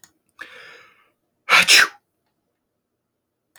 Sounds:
Sneeze